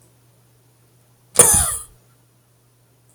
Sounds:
Cough